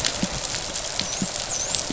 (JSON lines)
{"label": "biophony, dolphin", "recorder": "SoundTrap 500"}